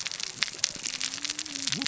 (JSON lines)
{"label": "biophony, cascading saw", "recorder": "SoundTrap 600 or HydroMoth"}